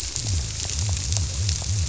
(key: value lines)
label: biophony
recorder: SoundTrap 300